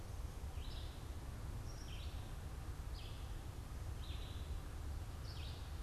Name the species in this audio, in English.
Red-eyed Vireo